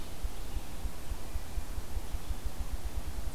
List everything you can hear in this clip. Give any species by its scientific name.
Bonasa umbellus